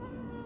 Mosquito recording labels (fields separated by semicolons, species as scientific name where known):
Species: Anopheles stephensi; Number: one; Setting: insect culture